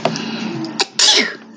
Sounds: Sneeze